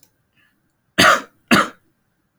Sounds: Cough